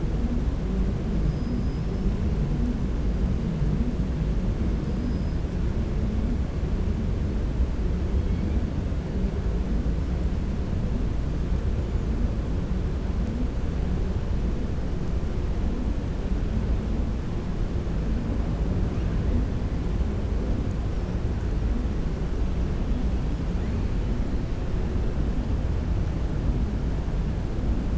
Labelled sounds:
1.2	2.1	killer whale, 4.9 to 5.5 kHz
4.9	5.4	killer whale, 4.5 to 5.1 kHz

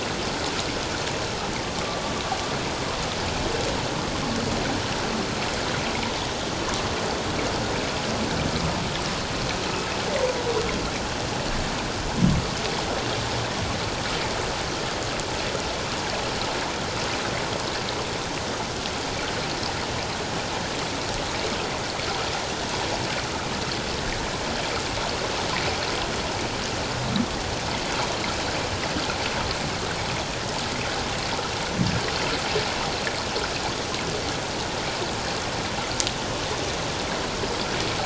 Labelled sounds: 1.7	2.0	humpback whale, 1.1 to 1.2 kHz

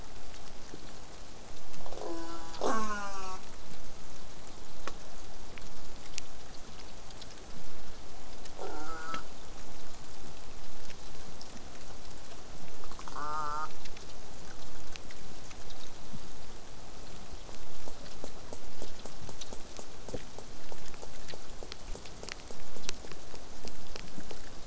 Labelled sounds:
1.9	3.4	killer whale, southern resident, J pod, call S04, 0.15 to 8.0 kHz
8.6	9.2	killer whale, southern resident, J pod, call S04, 0.15 to 8.0 kHz
13.1	13.7	killer whale, southern resident, J pod, call S04, 0.27 to 8.0 kHz

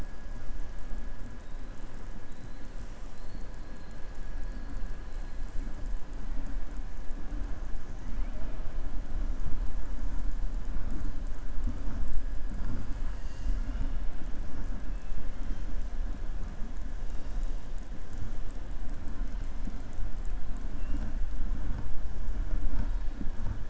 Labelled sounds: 2.3	2.7	killer whale, southern resident, 3.8 to 4.3 kHz
20.7	21.1	killer whale, southern resident, 1.9 to 3.6 kHz

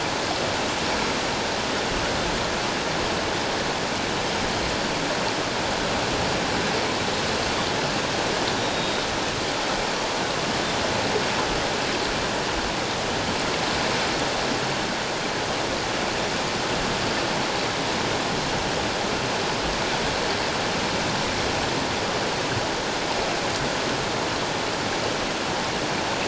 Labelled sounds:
8.6	9.0	Pacific white-sided dolphin, 3.6 to 3.9 kHz

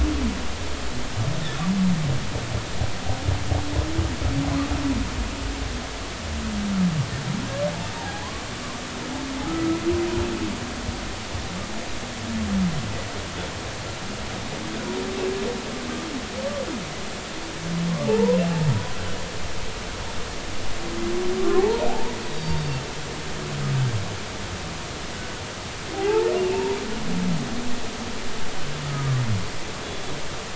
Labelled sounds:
7.9	8.3	humpback whale, 0.80 to 0.99 kHz
9.5	9.8	humpback whale, 1.2 to 1.4 kHz
18.1	18.4	humpback whale, 0.83 to 1.1 kHz
21.4	22.8	humpback whale, 0.80 to 4.7 kHz
25.9	26.8	humpback whale, 0.80 to 0.99 kHz
28.8	29.2	humpback whale, 1.1 to 1.3 kHz

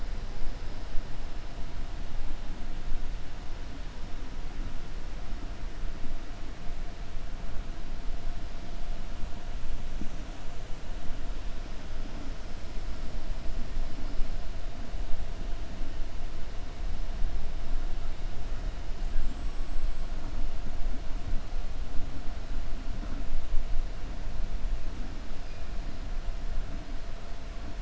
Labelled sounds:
19.0	20.0	killer whale, 7.1 to 8.0 kHz

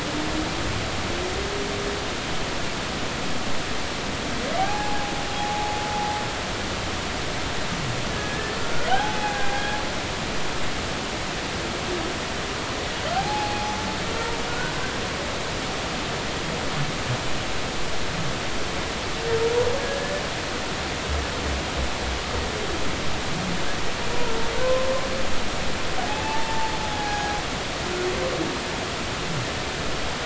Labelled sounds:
4.6	5.8	humpback whale, 0.80 to 0.90 kHz
8.1	9.8	humpback whale, 0.80 to 1.8 kHz
13.2	13.8	humpback whale, 0.80 to 0.93 kHz
14.5	14.7	humpback whale, 1.4 to 1.6 kHz
19.8	20.1	humpback whale, 1.6 to 1.8 kHz
24.6	24.9	humpback whale, 0.99 to 1.1 kHz
26.0	27.4	humpback whale, 0.80 to 1.7 kHz

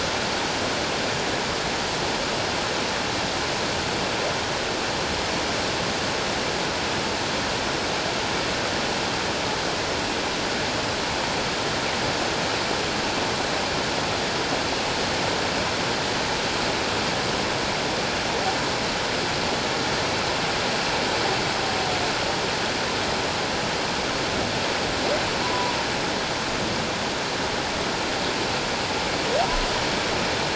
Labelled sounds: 25.4	25.8	humpback whale, 0.94 to 1.1 kHz

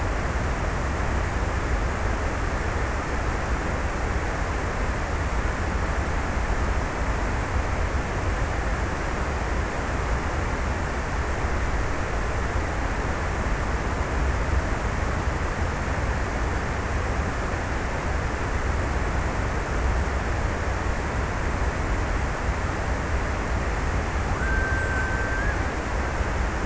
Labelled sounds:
23.4	26.6	killer whale, Bigg's (transient), 0.98 to 2.0 kHz

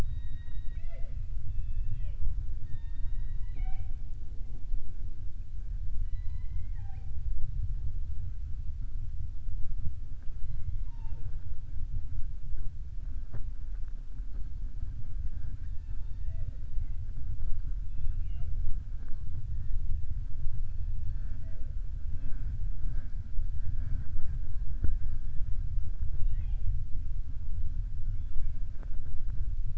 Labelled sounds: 0.0	1.2	killer whale, southern resident, 0.51 to 5.4 kHz
28.1	28.6	killer whale, southern resident, 1.1 to 3.6 kHz

